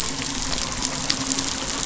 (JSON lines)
{"label": "biophony, midshipman", "recorder": "SoundTrap 500"}